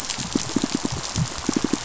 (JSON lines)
{"label": "biophony, pulse", "recorder": "SoundTrap 500"}